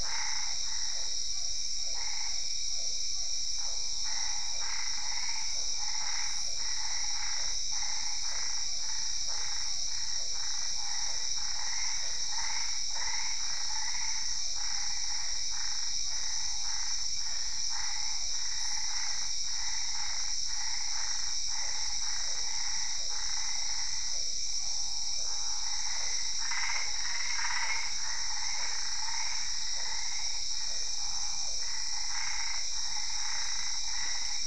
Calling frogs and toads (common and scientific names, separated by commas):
Boana albopunctata, Physalaemus cuvieri